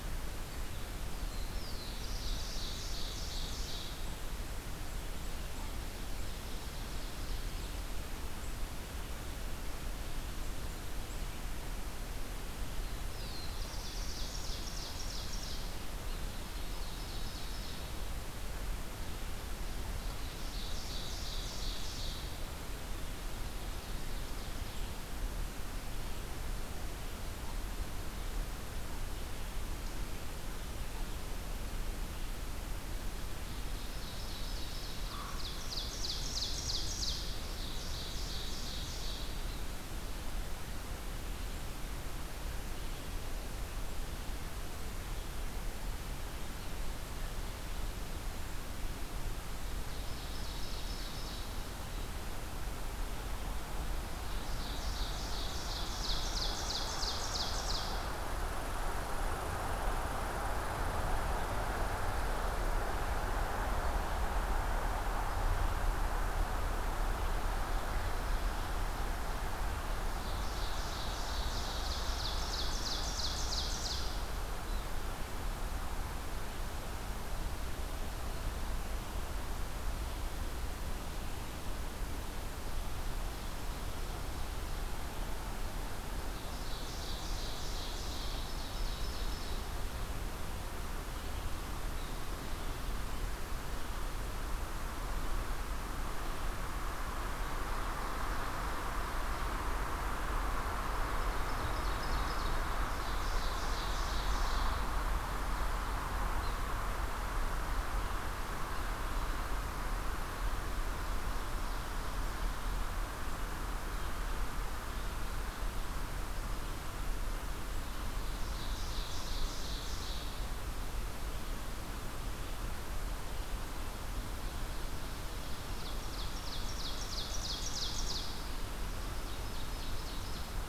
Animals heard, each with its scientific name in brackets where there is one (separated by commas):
Black-throated Blue Warbler (Setophaga caerulescens), American Crow (Corvus brachyrhynchos), Red Squirrel (Tamiasciurus hudsonicus), Ovenbird (Seiurus aurocapilla)